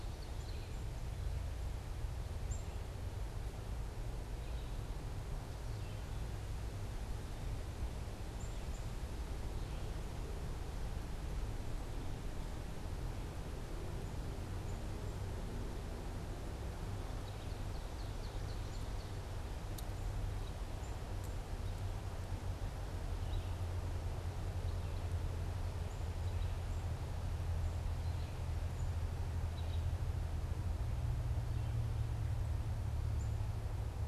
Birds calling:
Ovenbird (Seiurus aurocapilla), Red-eyed Vireo (Vireo olivaceus), Black-capped Chickadee (Poecile atricapillus)

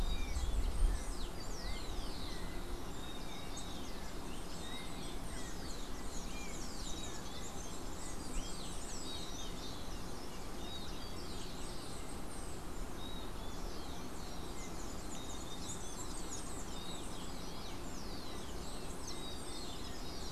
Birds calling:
unidentified bird, Yellow-backed Oriole (Icterus chrysater)

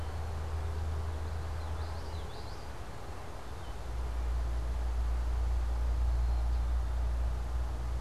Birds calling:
Black-capped Chickadee (Poecile atricapillus), Common Yellowthroat (Geothlypis trichas)

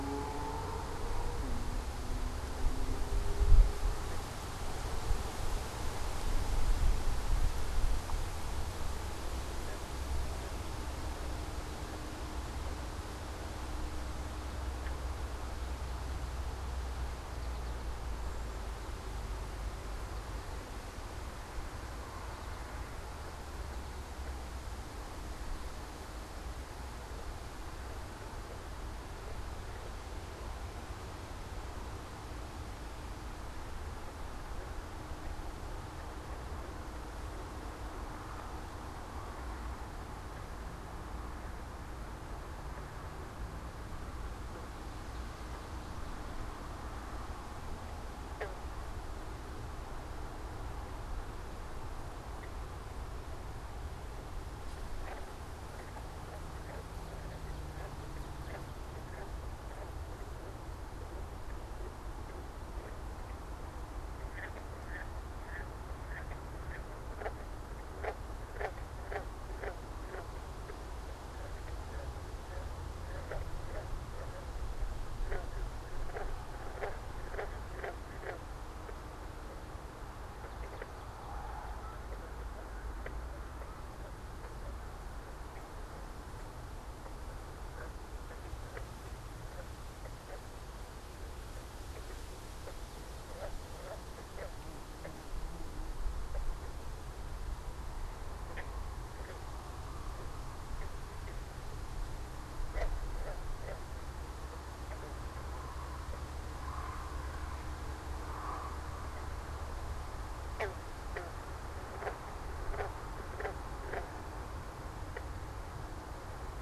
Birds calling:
unidentified bird, American Goldfinch (Spinus tristis)

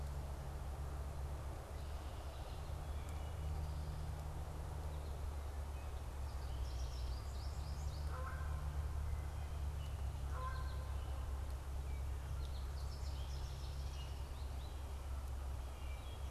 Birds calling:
Canada Goose (Branta canadensis), American Goldfinch (Spinus tristis), Wood Thrush (Hylocichla mustelina)

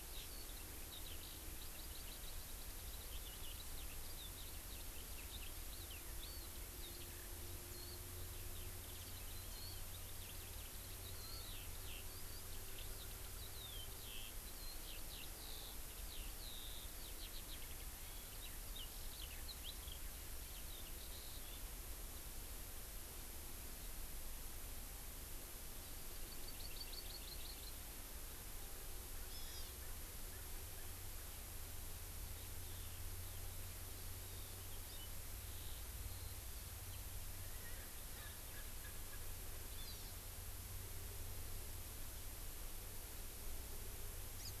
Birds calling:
Erckel's Francolin (Pternistis erckelii), Eurasian Skylark (Alauda arvensis), Hawaii Amakihi (Chlorodrepanis virens)

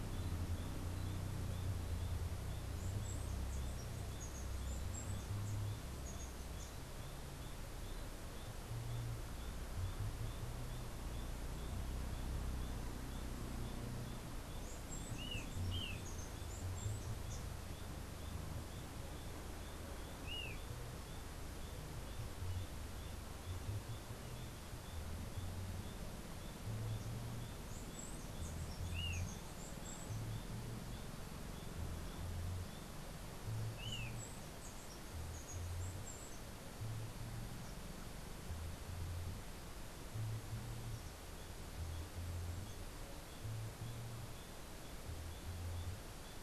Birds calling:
Chestnut-capped Brushfinch (Arremon brunneinucha), Black-chested Jay (Cyanocorax affinis)

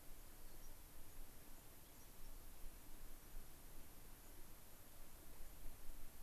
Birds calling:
White-crowned Sparrow (Zonotrichia leucophrys), Rock Wren (Salpinctes obsoletus)

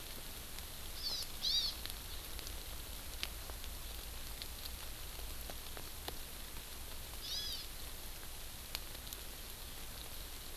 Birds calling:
Hawaii Amakihi (Chlorodrepanis virens)

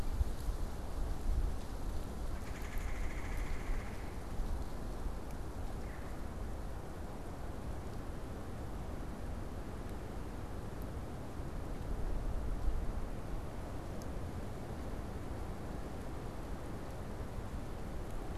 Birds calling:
Red-bellied Woodpecker (Melanerpes carolinus)

